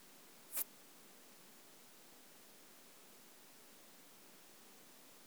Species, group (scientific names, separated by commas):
Poecilimon affinis, Orthoptera